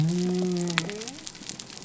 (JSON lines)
{"label": "biophony", "recorder": "SoundTrap 300"}